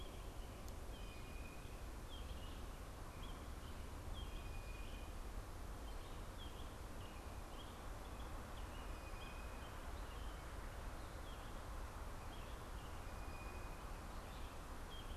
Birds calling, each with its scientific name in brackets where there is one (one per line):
American Robin (Turdus migratorius)
Blue Jay (Cyanocitta cristata)